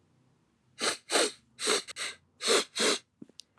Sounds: Sniff